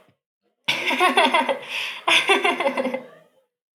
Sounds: Laughter